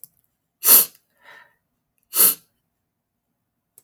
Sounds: Sniff